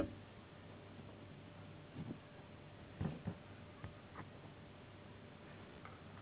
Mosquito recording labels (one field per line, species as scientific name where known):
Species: Anopheles gambiae s.s.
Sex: female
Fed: unfed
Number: one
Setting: insect culture